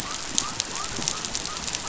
{"label": "biophony", "recorder": "SoundTrap 500"}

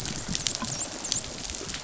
{"label": "biophony, dolphin", "recorder": "SoundTrap 500"}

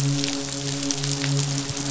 {"label": "biophony, midshipman", "recorder": "SoundTrap 500"}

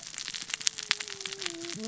{"label": "biophony, cascading saw", "recorder": "SoundTrap 600 or HydroMoth"}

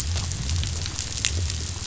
{"label": "biophony", "recorder": "SoundTrap 500"}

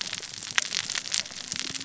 {"label": "biophony, cascading saw", "recorder": "SoundTrap 600 or HydroMoth"}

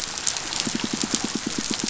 {"label": "biophony, pulse", "recorder": "SoundTrap 500"}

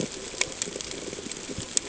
{"label": "ambient", "recorder": "HydroMoth"}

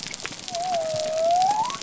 {"label": "biophony", "recorder": "SoundTrap 300"}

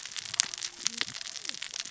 {"label": "biophony, cascading saw", "recorder": "SoundTrap 600 or HydroMoth"}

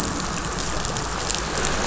{"label": "anthrophony, boat engine", "recorder": "SoundTrap 500"}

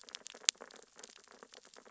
{"label": "biophony, sea urchins (Echinidae)", "recorder": "SoundTrap 600 or HydroMoth"}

